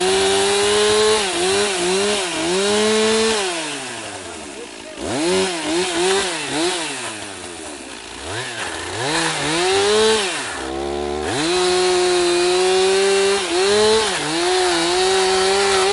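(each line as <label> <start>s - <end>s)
A chainsaw continuously cuts through wood with a loud buzzing sound. 0.0s - 4.9s
A chainsaw revving with loud, periodic buzzing sounds. 4.9s - 10.5s
A chainsaw continuously cuts through wood with a loud buzzing sound. 10.5s - 15.9s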